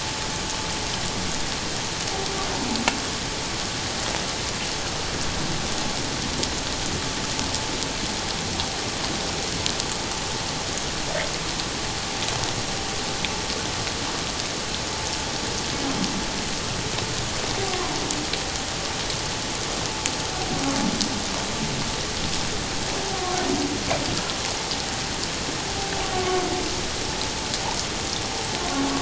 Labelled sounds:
26.1	26.4	humpback whale, 1.0 to 1.2 kHz

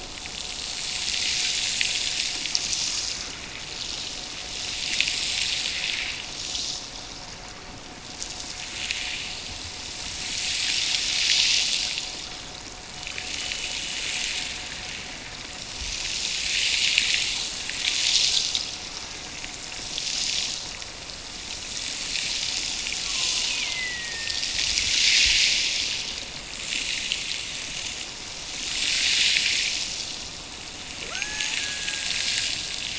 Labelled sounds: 23.4	24.5	killer whale, Bigg's (transient), Gulf of Alaska transient, 1.6 to 2.9 kHz
31.0	32.9	killer whale, Bigg's (transient), Gulf of Alaska transient, 0.23 to 1.9 kHz

